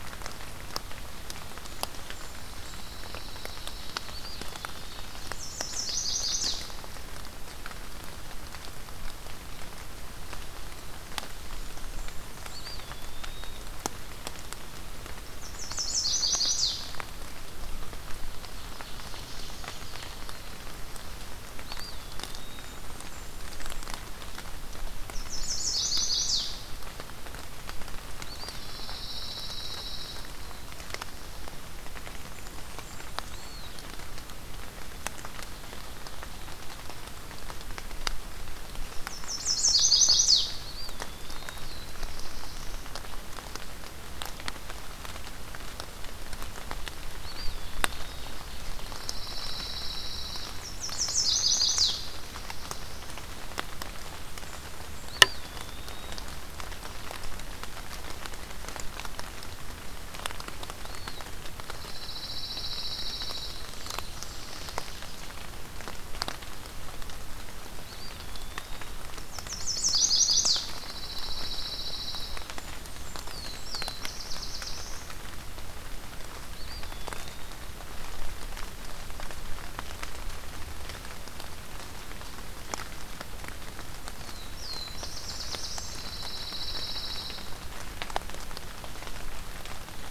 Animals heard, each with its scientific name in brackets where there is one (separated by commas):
Black-throated Blue Warbler (Setophaga caerulescens), Pine Warbler (Setophaga pinus), Ovenbird (Seiurus aurocapilla), Eastern Wood-Pewee (Contopus virens), Chestnut-sided Warbler (Setophaga pensylvanica), Blackburnian Warbler (Setophaga fusca)